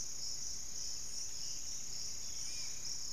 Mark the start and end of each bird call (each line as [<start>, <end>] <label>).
[0.00, 3.13] Spot-winged Antshrike (Pygiptila stellaris)
[0.11, 3.13] Pygmy Antwren (Myrmotherula brachyura)
[1.81, 3.13] Long-winged Antwren (Myrmotherula longipennis)